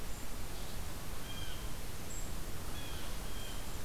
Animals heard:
Blue Jay (Cyanocitta cristata), Golden-crowned Kinglet (Regulus satrapa)

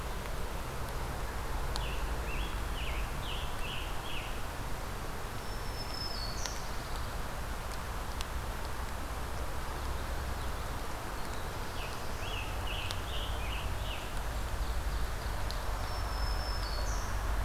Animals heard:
Pine Warbler (Setophaga pinus), Ovenbird (Seiurus aurocapilla), Black-throated Blue Warbler (Setophaga caerulescens), Black-throated Green Warbler (Setophaga virens), Scarlet Tanager (Piranga olivacea)

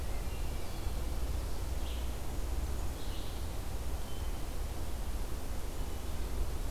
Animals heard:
Hermit Thrush (Catharus guttatus), Red-eyed Vireo (Vireo olivaceus)

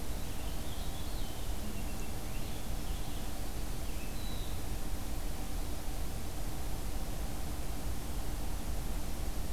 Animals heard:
Purple Finch (Haemorhous purpureus)

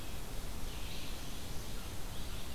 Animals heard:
Red-eyed Vireo (Vireo olivaceus)

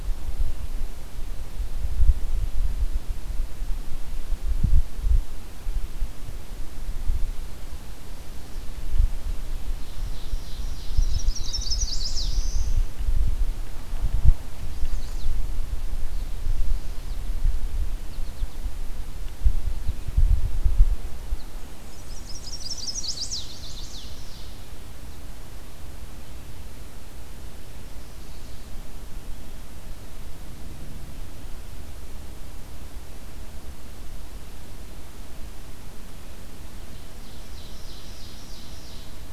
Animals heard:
Ovenbird (Seiurus aurocapilla), Chestnut-sided Warbler (Setophaga pensylvanica), Black-throated Blue Warbler (Setophaga caerulescens), American Goldfinch (Spinus tristis)

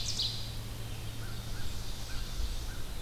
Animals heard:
American Crow (Corvus brachyrhynchos), Ovenbird (Seiurus aurocapilla), Black-throated Blue Warbler (Setophaga caerulescens), Red-eyed Vireo (Vireo olivaceus)

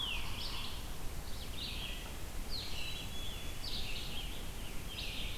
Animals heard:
Yellow-bellied Sapsucker (Sphyrapicus varius), Black-capped Chickadee (Poecile atricapillus), Red-eyed Vireo (Vireo olivaceus)

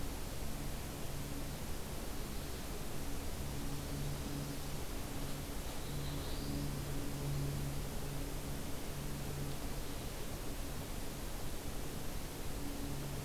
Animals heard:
Black-throated Blue Warbler (Setophaga caerulescens)

